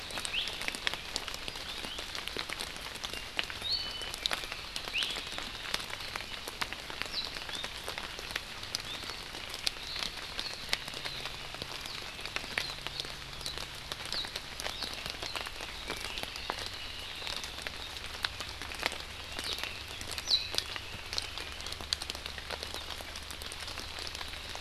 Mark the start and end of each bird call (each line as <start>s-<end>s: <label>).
0.3s-0.4s: Iiwi (Drepanis coccinea)
1.8s-2.1s: Iiwi (Drepanis coccinea)
3.1s-4.1s: Apapane (Himatione sanguinea)
3.6s-4.1s: Iiwi (Drepanis coccinea)
4.9s-5.1s: Iiwi (Drepanis coccinea)
7.1s-7.3s: Warbling White-eye (Zosterops japonicus)
9.8s-10.1s: Omao (Myadestes obscurus)
11.8s-12.0s: Warbling White-eye (Zosterops japonicus)
13.4s-13.5s: Warbling White-eye (Zosterops japonicus)
14.1s-14.2s: Warbling White-eye (Zosterops japonicus)
14.8s-14.9s: Warbling White-eye (Zosterops japonicus)
14.9s-17.3s: Red-billed Leiothrix (Leiothrix lutea)
19.3s-21.8s: Red-billed Leiothrix (Leiothrix lutea)
19.4s-19.6s: Warbling White-eye (Zosterops japonicus)
20.2s-20.5s: Warbling White-eye (Zosterops japonicus)